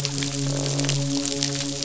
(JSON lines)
{"label": "biophony, midshipman", "recorder": "SoundTrap 500"}
{"label": "biophony, croak", "recorder": "SoundTrap 500"}